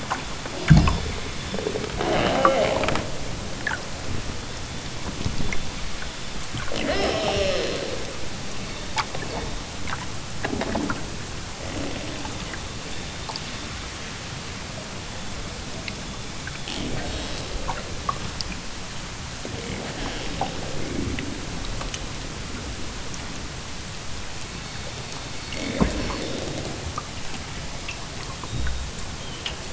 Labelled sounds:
5.1	5.6	killer whale, southern Alaska resident, 1.9 to 6.5 kHz
6.6	8.3	killer whale, southern Alaska resident, 0 to 8.0 kHz
8.6	9.2	killer whale, southern Alaska resident, 1.7 to 4.3 kHz
12.7	13.2	killer whale, southern Alaska resident, 3.8 to 7.8 kHz
16.9	17.9	killer whale, southern Alaska resident, 0 to 7.9 kHz
19.7	20.7	killer whale, southern Alaska resident, 0 to 5.9 kHz
24.4	25.1	killer whale, southern Alaska resident, 2.0 to 4.7 kHz
25.4	27.0	killer whale, southern Alaska resident, 0 to 4.7 kHz

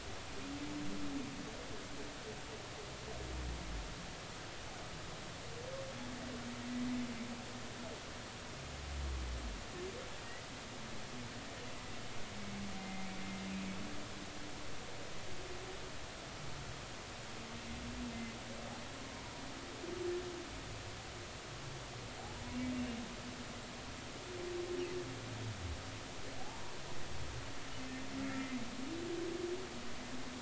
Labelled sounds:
12.8	13.1	humpback whale, 2.0 to 2.1 kHz

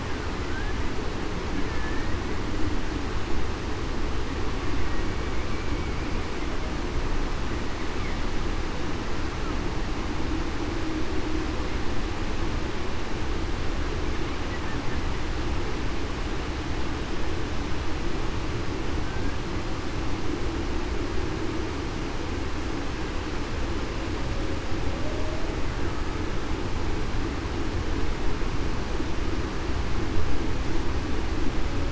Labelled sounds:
1.6	2.2	killer whale, Bigg's (transient), 1.7 to 1.9 kHz
25.1	25.5	humpback whale, 0.58 to 0.70 kHz

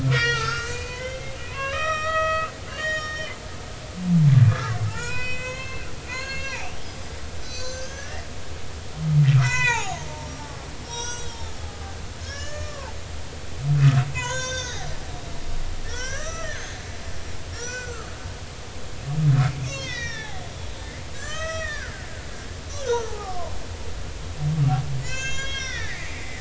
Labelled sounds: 0.0	3.3	humpback whale, 0.96 to 8.0 kHz
3.7	6.7	humpback whale, 0.80 to 7.1 kHz
7.4	8.3	humpback whale, 1.5 to 7.3 kHz
9.3	10.0	humpback whale, 0.80 to 7.1 kHz
10.8	12.9	humpback whale, 0.80 to 7.8 kHz
14.1	15.1	humpback whale, 0.90 to 7.3 kHz
15.8	18.1	humpback whale, 0.93 to 7.6 kHz
19.6	21.9	humpback whale, 0.80 to 7.5 kHz
22.8	23.5	humpback whale, 0.80 to 6.2 kHz
25.0	26.3	humpback whale, 1.3 to 7.4 kHz

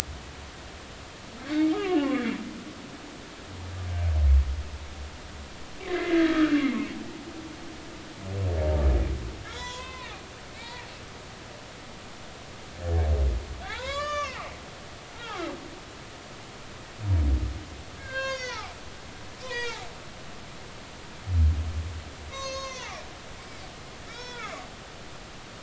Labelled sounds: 1.5	2.2	humpback whale, 0.80 to 2.9 kHz
5.8	6.8	humpback whale, 1.2 to 2.2 kHz
7.0	7.3	humpback whale, 0.80 to 0.96 kHz
9.5	10.1	humpback whale, 0.90 to 7.8 kHz
10.6	10.9	humpback whale, 1.8 to 2.0 kHz
12.7	15.5	humpback whale, 0.80 to 7.2 kHz
18.0	19.8	humpback whale, 0.80 to 7.0 kHz
22.3	23.0	humpback whale, 0.80 to 8.0 kHz
24.1	24.7	humpback whale, 0.90 to 5.5 kHz

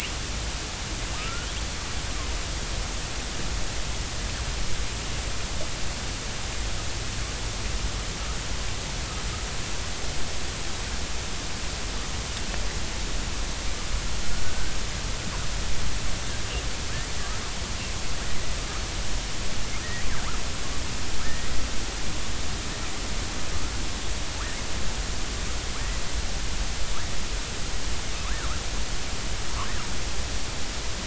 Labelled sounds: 1.2	1.5	killer whale, northern resident, 1.1 to 1.5 kHz
14.4	14.7	killer whale, northern resident, 1.4 to 1.6 kHz
19.8	20.1	killer whale, northern resident, 1.8 to 2.0 kHz
21.2	21.5	killer whale, northern resident, 1.6 to 2.0 kHz

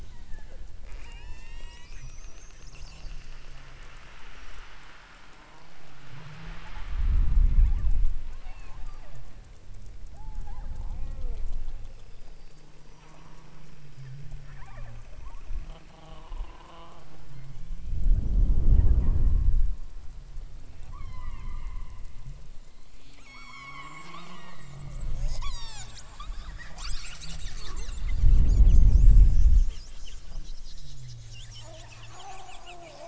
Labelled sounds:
0.8	2.0	killer whale, southern Alaska resident, 0.37 to 8.0 kHz
7.6	9.3	killer whale, southern Alaska resident, 0.43 to 4.7 kHz
10.1	11.5	killer whale, southern Alaska resident, 0.25 to 2.7 kHz
14.5	15.1	killer whale, southern Alaska resident, 0.34 to 2.6 kHz
17.2	18.0	killer whale, southern Alaska resident, 0.87 to 3.7 kHz
18.9	19.6	killer whale, southern Alaska resident, 0.80 to 2.7 kHz
20.8	22.1	killer whale, southern Alaska resident, 0.68 to 6.0 kHz
23.0	27.3	killer whale, southern Alaska resident, 0.23 to 8.0 kHz

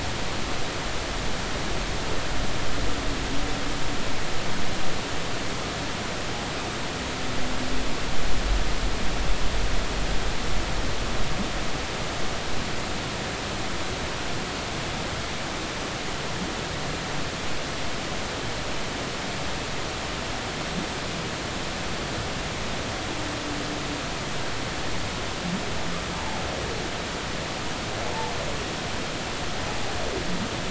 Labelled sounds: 26.1	26.4	humpback whale, 0.80 to 0.93 kHz

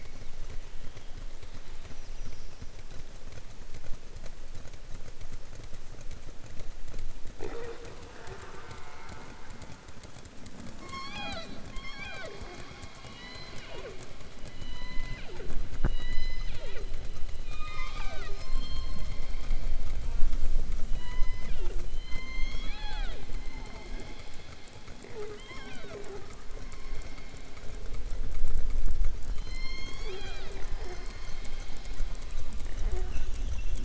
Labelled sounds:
17.4	19.1	killer whale, southern resident, 0.64 to 7.6 kHz
21.8	23.2	killer whale, southern resident, 0.63 to 6.5 kHz

